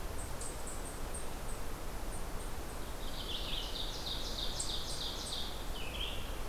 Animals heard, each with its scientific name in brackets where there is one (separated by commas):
Eastern Chipmunk (Tamias striatus), Red-eyed Vireo (Vireo olivaceus), Ovenbird (Seiurus aurocapilla)